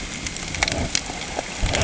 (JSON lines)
{"label": "ambient", "recorder": "HydroMoth"}